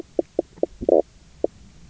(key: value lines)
label: biophony, knock croak
recorder: SoundTrap 300